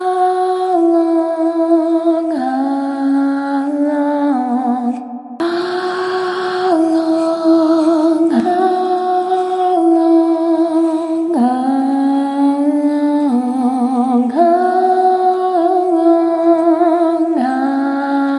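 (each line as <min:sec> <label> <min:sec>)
0:00.0 A woman sings melodically. 0:18.4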